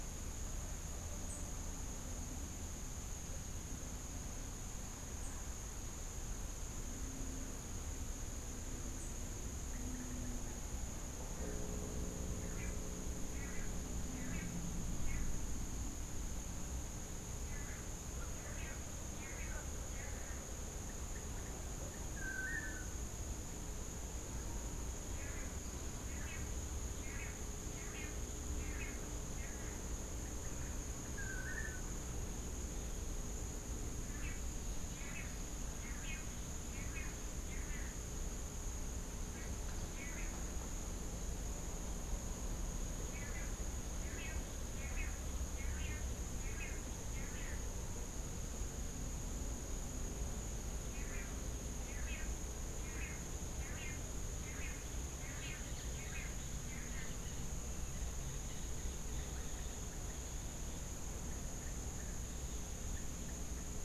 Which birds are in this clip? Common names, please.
Tennessee Warbler, Long-tailed Manakin